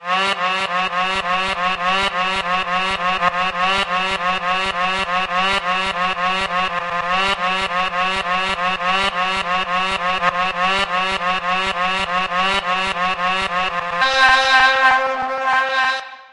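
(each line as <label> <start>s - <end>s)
An alarm is recurring. 0.0s - 13.9s
A loud, intense horn sounds. 14.0s - 16.0s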